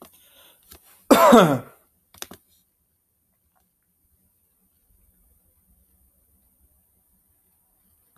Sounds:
Cough